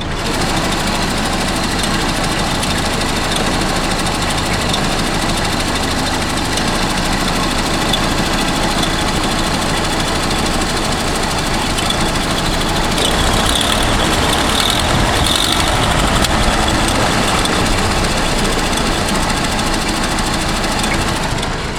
What part of the car can be heard?
engine